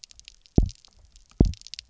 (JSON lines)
{"label": "biophony, double pulse", "recorder": "SoundTrap 300"}